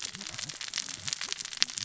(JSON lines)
{"label": "biophony, cascading saw", "recorder": "SoundTrap 600 or HydroMoth"}